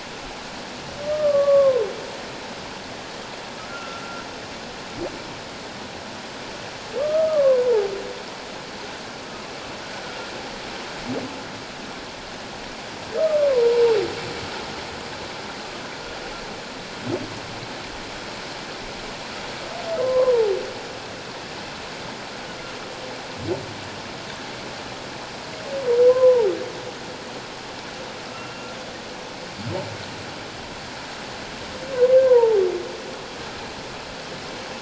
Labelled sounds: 1.0	1.9	humpback whale, 0.88 to 1.3 kHz
3.7	4.2	humpback whale, 1.3 to 1.6 kHz
7.0	7.9	humpback whale, 0.78 to 1.3 kHz
13.5	13.9	humpback whale, 0.84 to 1.1 kHz
20.0	20.5	humpback whale, 0.78 to 1.2 kHz
26.1	26.5	humpback whale, 0.78 to 1.1 kHz
28.3	28.7	humpback whale, 1.2 to 2.8 kHz
32.3	32.6	humpback whale, 0.78 to 1.1 kHz

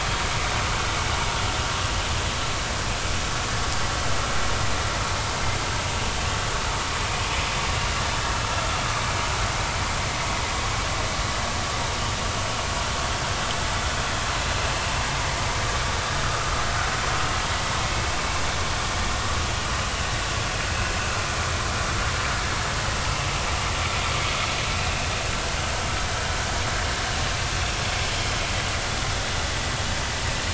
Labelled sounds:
16.2	16.5	vessel noise, 1.2 to 1.5 kHz

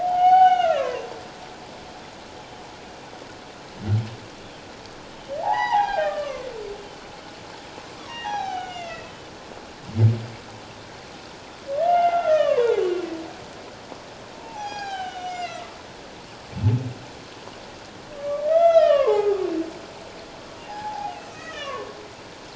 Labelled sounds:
0.0	1.1	humpback whale, 0.78 to 3.8 kHz
5.4	6.5	humpback whale, 0.78 to 4.1 kHz
8.0	9.1	humpback whale, 0.78 to 6.6 kHz
11.8	12.8	humpback whale, 0.78 to 3.1 kHz
14.4	15.8	humpback whale, 0.78 to 6.7 kHz
18.2	19.4	humpback whale, 0.78 to 6.2 kHz
20.7	21.9	humpback whale, 0.78 to 2.6 kHz

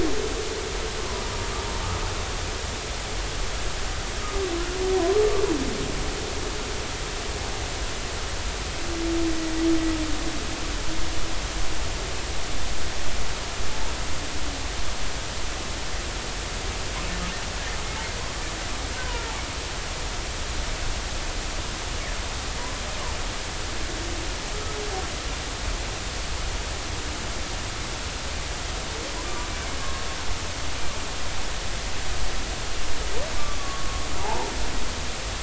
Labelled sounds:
19.0	19.3	humpback whale, 0.90 to 1.6 kHz
29.8	30.0	humpback whale, 1.0 to 1.2 kHz
33.6	34.5	humpback whale, 0.80 to 1.2 kHz

